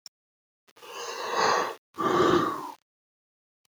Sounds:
Sneeze